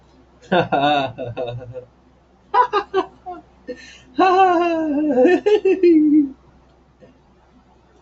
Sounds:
Laughter